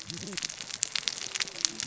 {"label": "biophony, cascading saw", "recorder": "SoundTrap 600 or HydroMoth"}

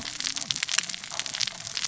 {"label": "biophony, cascading saw", "recorder": "SoundTrap 600 or HydroMoth"}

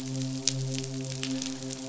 {"label": "biophony, midshipman", "recorder": "SoundTrap 500"}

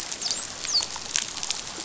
{"label": "biophony, dolphin", "recorder": "SoundTrap 500"}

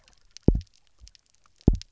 {"label": "biophony, double pulse", "recorder": "SoundTrap 300"}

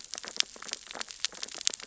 {"label": "biophony, sea urchins (Echinidae)", "recorder": "SoundTrap 600 or HydroMoth"}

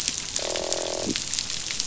{"label": "biophony, croak", "recorder": "SoundTrap 500"}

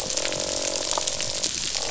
{"label": "biophony, croak", "recorder": "SoundTrap 500"}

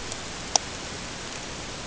{"label": "ambient", "recorder": "HydroMoth"}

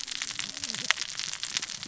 {"label": "biophony, cascading saw", "recorder": "SoundTrap 600 or HydroMoth"}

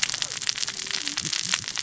{"label": "biophony, cascading saw", "recorder": "SoundTrap 600 or HydroMoth"}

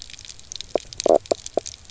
{"label": "biophony, knock croak", "recorder": "SoundTrap 300"}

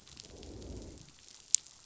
{"label": "biophony, growl", "recorder": "SoundTrap 500"}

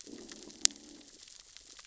{"label": "biophony, growl", "recorder": "SoundTrap 600 or HydroMoth"}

